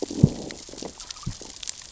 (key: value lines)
label: biophony, growl
recorder: SoundTrap 600 or HydroMoth